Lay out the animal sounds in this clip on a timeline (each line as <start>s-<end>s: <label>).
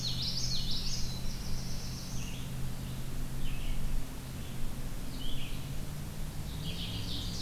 0.0s-1.3s: Common Yellowthroat (Geothlypis trichas)
0.0s-7.4s: Red-eyed Vireo (Vireo olivaceus)
0.6s-2.6s: Black-throated Blue Warbler (Setophaga caerulescens)
6.6s-7.4s: Ovenbird (Seiurus aurocapilla)